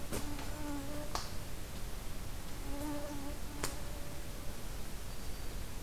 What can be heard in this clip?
Golden-crowned Kinglet, Black-throated Green Warbler